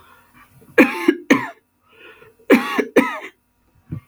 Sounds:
Throat clearing